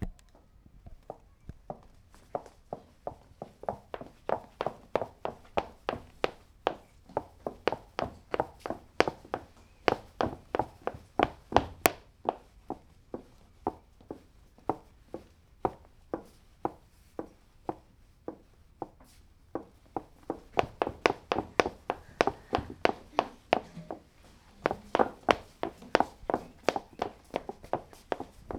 Is the surface dry?
yes